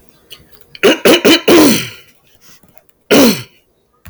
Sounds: Throat clearing